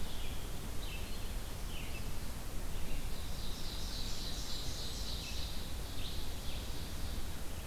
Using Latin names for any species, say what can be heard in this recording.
Vireo olivaceus, Seiurus aurocapilla